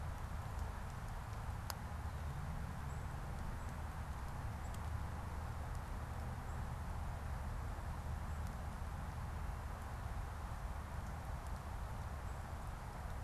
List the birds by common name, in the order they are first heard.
unidentified bird